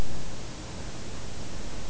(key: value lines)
label: biophony
recorder: SoundTrap 300